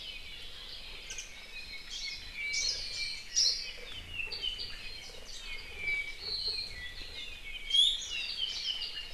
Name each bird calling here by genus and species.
Zosterops japonicus, Himatione sanguinea, Loxops mana, Drepanis coccinea